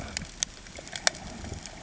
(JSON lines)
{"label": "ambient", "recorder": "HydroMoth"}